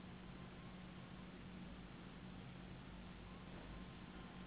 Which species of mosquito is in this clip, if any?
Anopheles gambiae s.s.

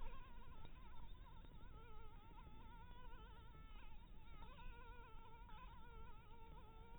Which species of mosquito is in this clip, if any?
Anopheles dirus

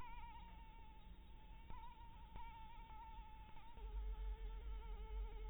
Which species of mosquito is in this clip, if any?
Anopheles maculatus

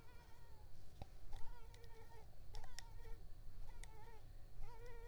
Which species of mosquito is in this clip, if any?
Culex tigripes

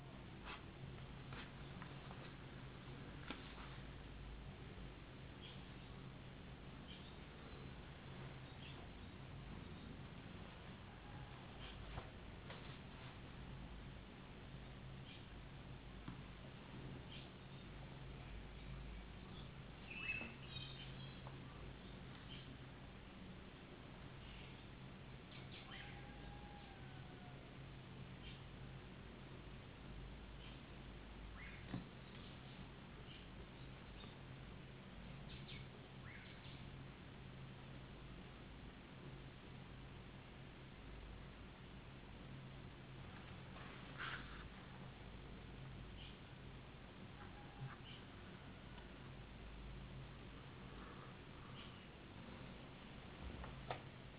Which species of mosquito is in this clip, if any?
no mosquito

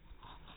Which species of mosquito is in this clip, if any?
no mosquito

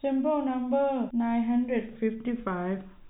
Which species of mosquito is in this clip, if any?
no mosquito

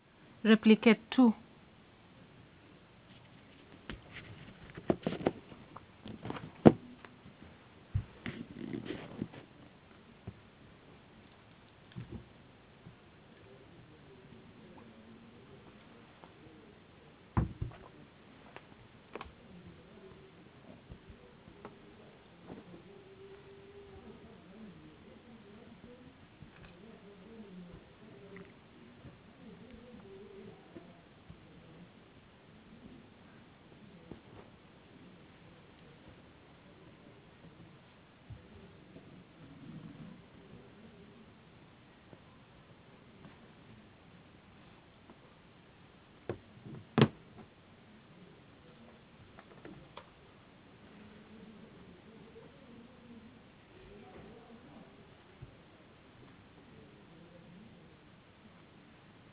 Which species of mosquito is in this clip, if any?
no mosquito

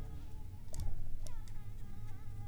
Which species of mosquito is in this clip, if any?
Anopheles arabiensis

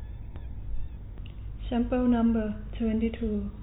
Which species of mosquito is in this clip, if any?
no mosquito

